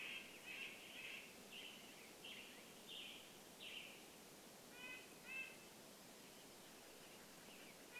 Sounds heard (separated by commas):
Red-breasted Nuthatch song, Black-headed Grosbeak song, Western Tanager song